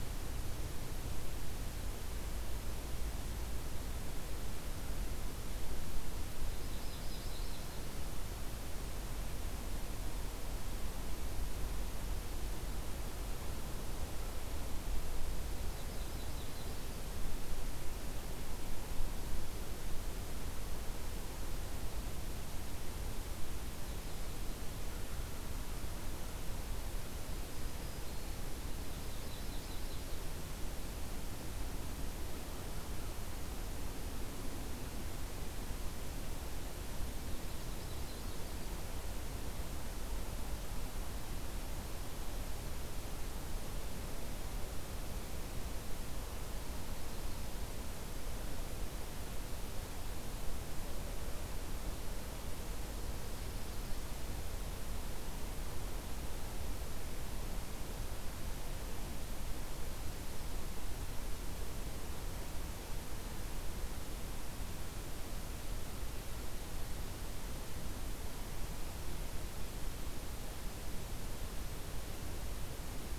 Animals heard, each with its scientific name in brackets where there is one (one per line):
Yellow-rumped Warbler (Setophaga coronata)
Black-throated Green Warbler (Setophaga virens)